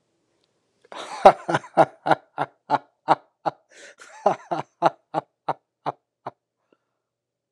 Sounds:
Laughter